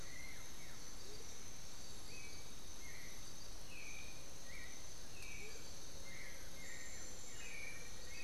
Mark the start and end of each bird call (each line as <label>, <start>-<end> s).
Blue-gray Saltator (Saltator coerulescens), 0.0-1.0 s
Amazonian Motmot (Momotus momota), 0.0-8.2 s
Black-billed Thrush (Turdus ignobilis), 0.0-8.2 s
Blue-gray Saltator (Saltator coerulescens), 5.7-8.2 s
Black-faced Antthrush (Formicarius analis), 6.5-8.2 s